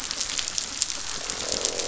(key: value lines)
label: biophony, croak
recorder: SoundTrap 500